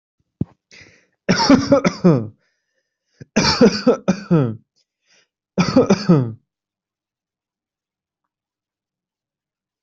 {"expert_labels": [{"quality": "ok", "cough_type": "dry", "dyspnea": false, "wheezing": false, "stridor": false, "choking": false, "congestion": false, "nothing": true, "diagnosis": "COVID-19", "severity": "mild"}], "age": 27, "gender": "male", "respiratory_condition": true, "fever_muscle_pain": false, "status": "symptomatic"}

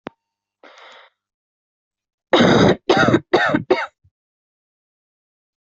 {"expert_labels": [{"quality": "ok", "cough_type": "unknown", "dyspnea": false, "wheezing": false, "stridor": false, "choking": false, "congestion": false, "nothing": true, "diagnosis": "lower respiratory tract infection", "severity": "mild"}], "age": 20, "gender": "female", "respiratory_condition": false, "fever_muscle_pain": true, "status": "symptomatic"}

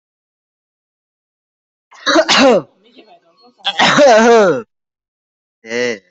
{"expert_labels": [{"quality": "poor", "cough_type": "dry", "dyspnea": false, "wheezing": false, "stridor": false, "choking": false, "congestion": false, "nothing": true, "diagnosis": "healthy cough", "severity": "pseudocough/healthy cough"}], "age": 20, "gender": "male", "respiratory_condition": false, "fever_muscle_pain": false, "status": "COVID-19"}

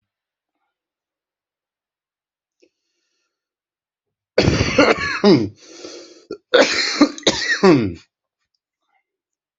{"expert_labels": [{"quality": "good", "cough_type": "wet", "dyspnea": false, "wheezing": false, "stridor": false, "choking": false, "congestion": false, "nothing": true, "diagnosis": "obstructive lung disease", "severity": "mild"}], "age": 26, "gender": "male", "respiratory_condition": true, "fever_muscle_pain": false, "status": "symptomatic"}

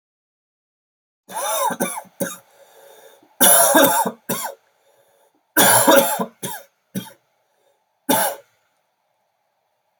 {"expert_labels": [{"quality": "good", "cough_type": "dry", "dyspnea": false, "wheezing": false, "stridor": false, "choking": false, "congestion": false, "nothing": true, "diagnosis": "COVID-19", "severity": "severe"}], "age": 32, "gender": "male", "respiratory_condition": true, "fever_muscle_pain": false, "status": "COVID-19"}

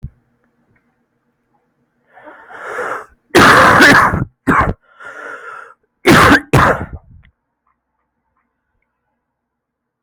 {"expert_labels": [{"quality": "ok", "cough_type": "unknown", "dyspnea": false, "wheezing": false, "stridor": false, "choking": false, "congestion": false, "nothing": true, "diagnosis": "lower respiratory tract infection", "severity": "mild"}], "age": 24, "gender": "male", "respiratory_condition": false, "fever_muscle_pain": false, "status": "symptomatic"}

